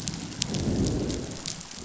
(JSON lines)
{"label": "biophony, growl", "recorder": "SoundTrap 500"}